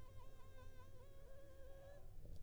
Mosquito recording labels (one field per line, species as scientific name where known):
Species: Anopheles funestus s.s.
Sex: female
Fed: unfed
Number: one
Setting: cup